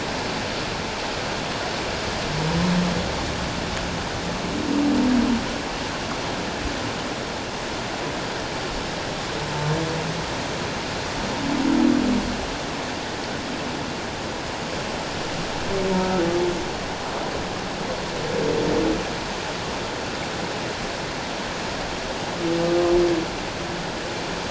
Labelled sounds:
15.9	16.3	humpback whale, 1.2 to 1.5 kHz

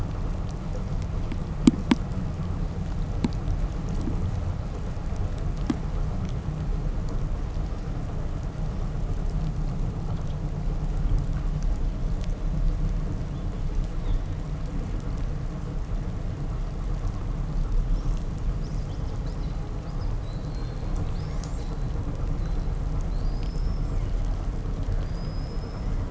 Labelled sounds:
13.8	14.4	killer whale, southern resident, 2.8 to 4.5 kHz
17.7	21.9	killer whale, southern resident, 1.5 to 8.0 kHz
22.3	22.7	killer whale, southern resident, 3.4 to 6.7 kHz
23.0	24.0	killer whale, southern resident, 3.5 to 8.0 kHz
24.9	26.0	killer whale, southern resident, 3.5 to 8.0 kHz

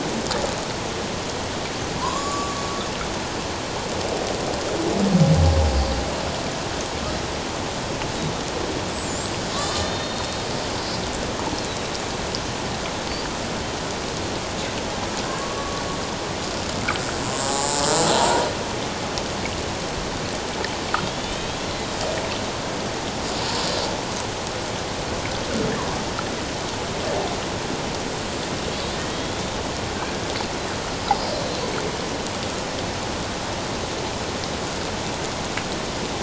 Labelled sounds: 2.0	2.7	killer whale, Bigg's (transient), 0.91 to 7.5 kHz
8.9	10.4	killer whale, Bigg's (transient), 3.6 to 7.9 kHz
15.4	15.8	killer whale, Bigg's (transient), 1.1 to 1.2 kHz
17.5	18.5	killer whale, Bigg's (transient), 0.78 to 1.0 kHz
21.0	21.7	killer whale, Bigg's (transient), 2.8 to 3.8 kHz
28.9	30.2	killer whale, Bigg's (transient), 1.5 to 3.7 kHz
31.0	31.3	killer whale, Bigg's (transient), 4.8 to 5.0 kHz

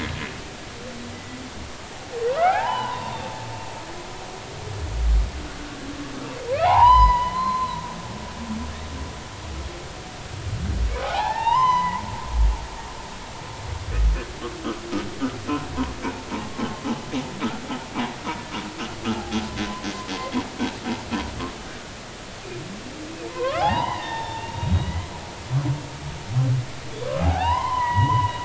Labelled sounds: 1.1	3.4	humpback whale, 0.80 to 3.7 kHz
6.6	7.8	humpback whale, 0.80 to 5.1 kHz
10.9	13.0	humpback whale, 0.80 to 6.2 kHz
23.3	25.1	humpback whale, 0.80 to 3.9 kHz
27.2	28.4	humpback whale, 0.80 to 3.2 kHz

